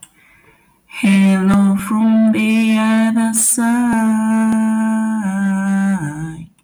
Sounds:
Sigh